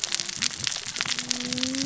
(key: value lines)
label: biophony, cascading saw
recorder: SoundTrap 600 or HydroMoth